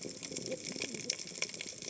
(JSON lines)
{"label": "biophony, cascading saw", "recorder": "HydroMoth"}